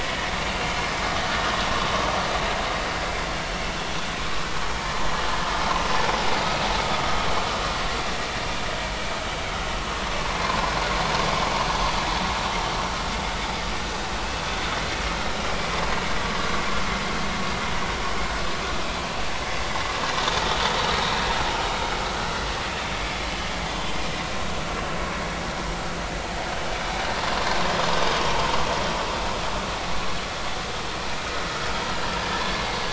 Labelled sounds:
32.2	32.8	vessel noise, 1.6 to 2.2 kHz

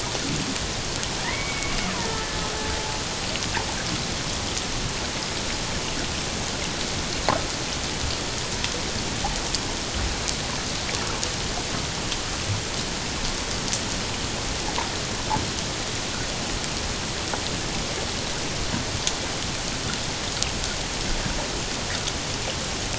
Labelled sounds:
1.2	2.4	killer whale, Bigg's (transient), 1.7 to 2.3 kHz

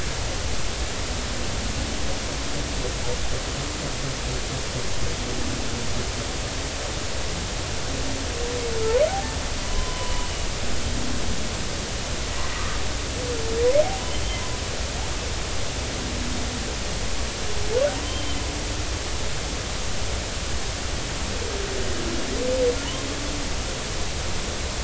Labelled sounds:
9.1	10.3	humpback whale, 0.80 to 3.1 kHz
12.5	12.8	humpback whale, 1.1 to 1.3 kHz
18.0	18.5	humpback whale, 3.0 to 3.3 kHz

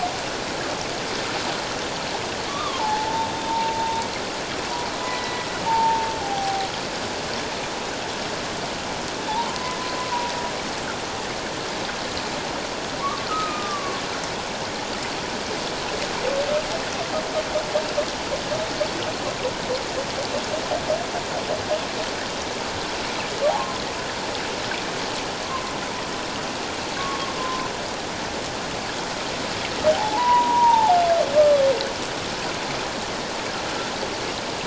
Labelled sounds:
2.5	4.1	humpback whale, 0.78 to 1.3 kHz
5.0	6.7	humpback whale, 0.78 to 4.0 kHz
13.0	14.0	humpback whale, 1.0 to 1.5 kHz
23.5	23.8	humpback whale, 0.78 to 1.1 kHz
27.0	27.7	humpback whale, 0.94 to 1.2 kHz
29.9	31.6	humpback whale, 0.78 to 2.0 kHz

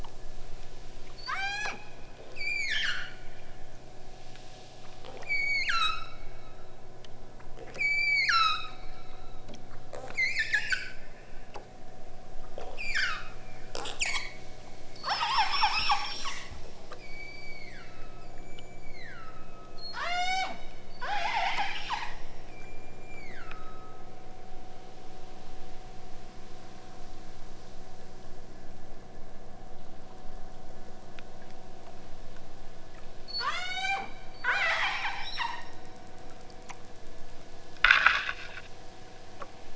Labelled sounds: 1.2	1.9	killer whale, southern Alaska resident, 0.41 to 8.0 kHz
2.3	3.1	killer whale, southern Alaska resident, 0.71 to 8.0 kHz
5.2	6.2	killer whale, southern Alaska resident, 0.85 to 8.0 kHz
7.7	8.7	killer whale, southern Alaska resident, 0.78 to 8.0 kHz
10.0	11.0	killer whale, southern Alaska resident, 0.88 to 8.0 kHz
12.7	13.5	killer whale, southern Alaska resident, 0.85 to 8.0 kHz
13.7	14.3	killer whale, southern Alaska resident, 0.20 to 8.0 kHz
15.0	16.6	killer whale, southern Alaska resident, 0.37 to 8.0 kHz
16.9	20.5	killer whale, southern Alaska resident, 0.41 to 8.0 kHz
21.0	22.2	killer whale, southern Alaska resident, 0.57 to 8.0 kHz
22.5	24.1	killer whale, southern Alaska resident, 1.0 to 8.0 kHz
33.2	34.1	killer whale, southern Alaska resident, 0.44 to 8.0 kHz
34.5	35.7	killer whale, southern Alaska resident, 0.37 to 8.0 kHz

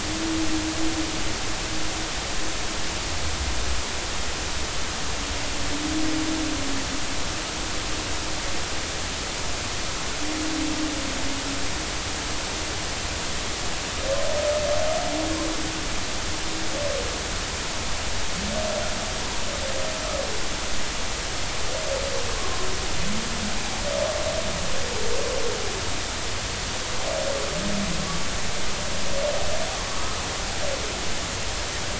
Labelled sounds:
22.3	22.6	humpback whale, 0.99 to 1.2 kHz
29.9	30.2	humpback whale, 1.0 to 1.4 kHz

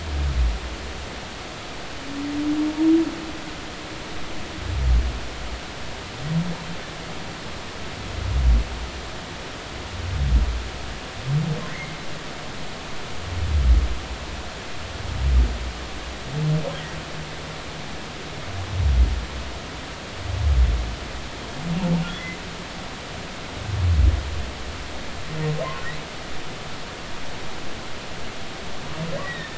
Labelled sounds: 11.7	12.0	humpback whale, 1.9 to 2.2 kHz
22.1	22.4	humpback whale, 1.9 to 2.1 kHz
29.2	29.5	humpback whale, 1.7 to 3.9 kHz

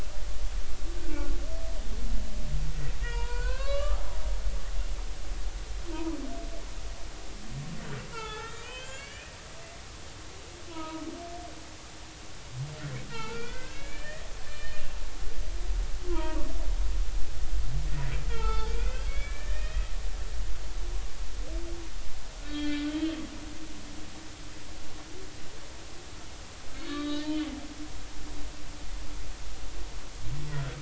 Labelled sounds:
3.0	4.0	humpback whale, 0.90 to 4.7 kHz
8.1	9.3	humpback whale, 0.80 to 3.8 kHz
10.7	11.1	humpback whale, 0.90 to 1.3 kHz
13.1	14.8	humpback whale, 0.83 to 3.1 kHz
16.1	16.4	humpback whale, 0.90 to 1.4 kHz
18.3	19.9	humpback whale, 0.80 to 4.5 kHz
22.4	23.2	humpback whale, 1.4 to 3.9 kHz
26.8	27.5	humpback whale, 1.1 to 4.5 kHz

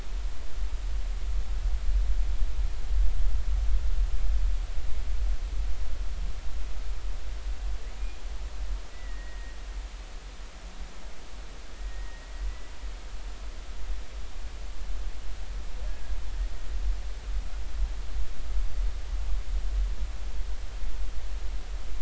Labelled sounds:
8.9	9.5	humpback whale, 1.8 to 2.0 kHz
11.7	12.3	humpback whale, 1.8 to 2.0 kHz

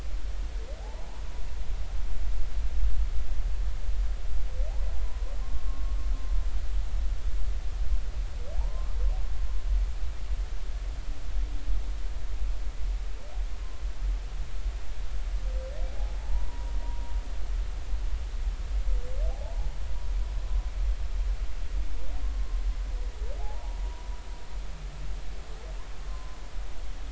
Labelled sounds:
0.8	1.1	humpback whale, 0.80 to 1.0 kHz
5.4	6.0	humpback whale, 1.0 to 1.2 kHz
8.6	8.9	humpback whale, 0.80 to 1.1 kHz
16.2	16.7	humpback whale, 0.80 to 1.0 kHz
19.3	19.7	humpback whale, 0.80 to 0.99 kHz
23.4	23.8	humpback whale, 0.80 to 0.99 kHz
26.1	26.4	humpback whale, 0.96 to 1.1 kHz

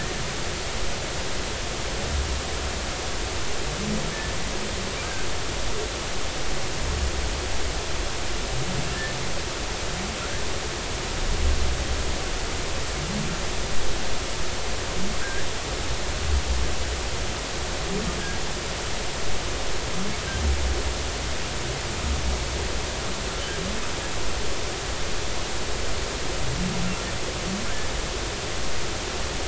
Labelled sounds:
15.2	15.5	humpback whale, 1.4 to 1.8 kHz

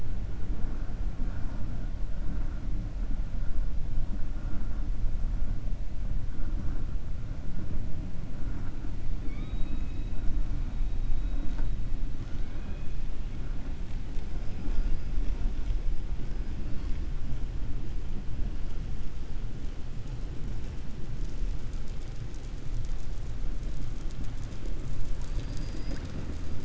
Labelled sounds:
9.2	10.2	killer whale, 0.46 to 4.8 kHz
12.2	12.9	killer whale, 0.79 to 3.4 kHz

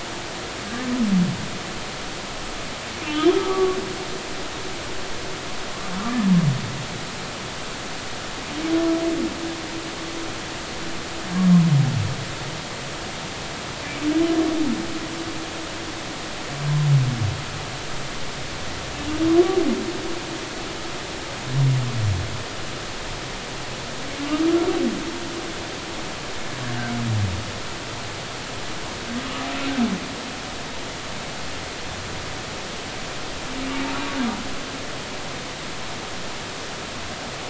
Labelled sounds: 3.0	3.8	humpback whale, 1.1 to 3.3 kHz

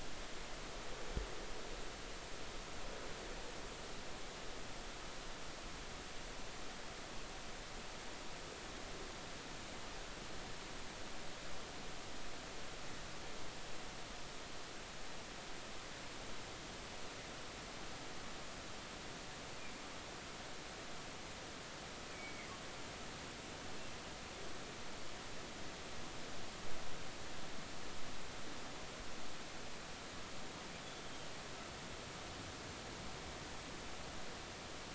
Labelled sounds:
22.1	22.5	humpback whale, 1.9 to 2.4 kHz
30.8	31.1	humpback whale, 3.3 to 3.6 kHz

